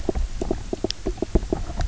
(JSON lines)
{"label": "biophony, knock croak", "recorder": "SoundTrap 300"}